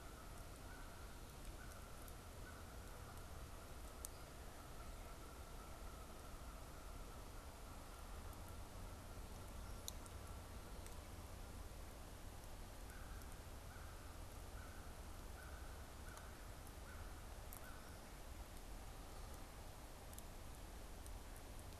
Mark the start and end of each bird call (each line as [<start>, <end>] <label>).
[0.00, 2.66] American Crow (Corvus brachyrhynchos)
[0.00, 11.06] Canada Goose (Branta canadensis)
[12.66, 18.06] American Crow (Corvus brachyrhynchos)